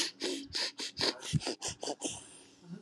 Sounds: Sniff